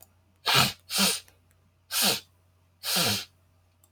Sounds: Sniff